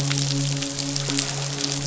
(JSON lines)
{"label": "biophony, midshipman", "recorder": "SoundTrap 500"}